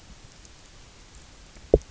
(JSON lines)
{"label": "biophony, knock", "recorder": "SoundTrap 300"}